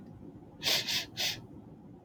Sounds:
Sniff